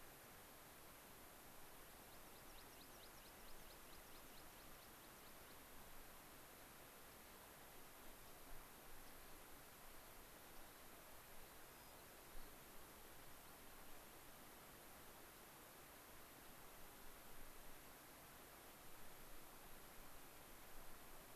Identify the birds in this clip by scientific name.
Anthus rubescens, Salpinctes obsoletus, Zonotrichia leucophrys